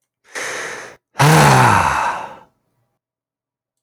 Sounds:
Sigh